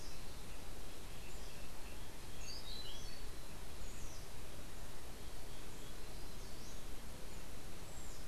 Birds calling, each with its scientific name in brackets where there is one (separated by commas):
Orange-billed Nightingale-Thrush (Catharus aurantiirostris)